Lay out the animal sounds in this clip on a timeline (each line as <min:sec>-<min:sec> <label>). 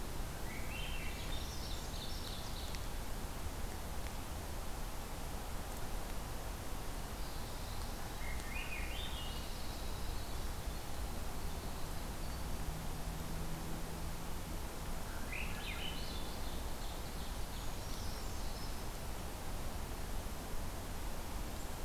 0:00.4-0:01.6 Swainson's Thrush (Catharus ustulatus)
0:01.0-0:02.8 Ovenbird (Seiurus aurocapilla)
0:01.2-0:02.2 Brown Creeper (Certhia americana)
0:07.2-0:08.3 Black-throated Blue Warbler (Setophaga caerulescens)
0:08.1-0:09.8 Swainson's Thrush (Catharus ustulatus)
0:08.2-0:12.7 Winter Wren (Troglodytes hiemalis)
0:15.0-0:16.5 Swainson's Thrush (Catharus ustulatus)
0:16.5-0:18.1 Ovenbird (Seiurus aurocapilla)
0:17.5-0:18.9 Brown Creeper (Certhia americana)